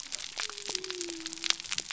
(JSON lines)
{"label": "biophony", "recorder": "SoundTrap 300"}